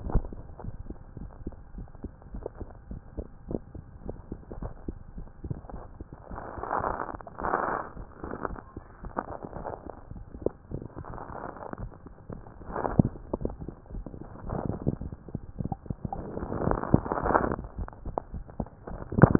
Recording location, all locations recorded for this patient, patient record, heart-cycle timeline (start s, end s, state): tricuspid valve (TV)
pulmonary valve (PV)+tricuspid valve (TV)+mitral valve (MV)
#Age: Child
#Sex: Female
#Height: 112.0 cm
#Weight: 21.2 kg
#Pregnancy status: False
#Murmur: Absent
#Murmur locations: nan
#Most audible location: nan
#Systolic murmur timing: nan
#Systolic murmur shape: nan
#Systolic murmur grading: nan
#Systolic murmur pitch: nan
#Systolic murmur quality: nan
#Diastolic murmur timing: nan
#Diastolic murmur shape: nan
#Diastolic murmur grading: nan
#Diastolic murmur pitch: nan
#Diastolic murmur quality: nan
#Outcome: Normal
#Campaign: 2015 screening campaign
0.00	0.31	unannotated
0.31	0.62	diastole
0.62	0.74	S1
0.74	0.88	systole
0.88	0.96	S2
0.96	1.18	diastole
1.18	1.30	S1
1.30	1.46	systole
1.46	1.58	S2
1.58	1.76	diastole
1.76	1.88	S1
1.88	2.04	systole
2.04	2.14	S2
2.14	2.32	diastole
2.32	2.46	S1
2.46	2.60	systole
2.60	2.70	S2
2.70	2.90	diastole
2.90	3.02	S1
3.02	3.18	systole
3.18	3.28	S2
3.28	3.48	diastole
3.48	3.60	S1
3.60	3.74	systole
3.74	3.84	S2
3.84	4.04	diastole
4.04	4.18	S1
4.18	4.32	systole
4.32	4.40	S2
4.40	4.56	diastole
4.56	4.72	S1
4.72	4.84	systole
4.84	4.96	S2
4.96	5.16	diastole
5.16	5.26	S1
5.26	5.44	systole
5.44	5.58	S2
5.58	5.72	diastole
5.72	5.82	S1
5.82	6.00	systole
6.00	6.10	S2
6.10	6.32	diastole
6.32	6.42	S1
6.42	6.58	systole
6.58	6.68	S2
6.68	6.84	diastole
6.84	19.39	unannotated